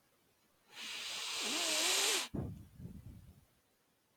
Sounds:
Sniff